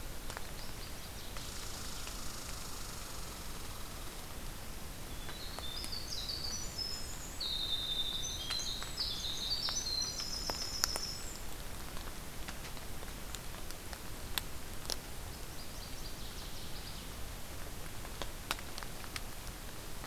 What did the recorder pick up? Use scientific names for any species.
Parkesia noveboracensis, Tamiasciurus hudsonicus, Troglodytes hiemalis